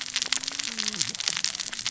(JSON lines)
{"label": "biophony, cascading saw", "recorder": "SoundTrap 600 or HydroMoth"}